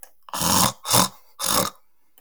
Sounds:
Throat clearing